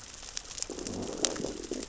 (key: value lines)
label: biophony, growl
recorder: SoundTrap 600 or HydroMoth